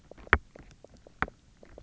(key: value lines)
label: biophony, knock croak
recorder: SoundTrap 300